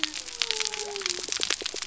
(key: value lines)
label: biophony
recorder: SoundTrap 300